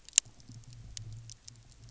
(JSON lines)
{"label": "anthrophony, boat engine", "recorder": "SoundTrap 300"}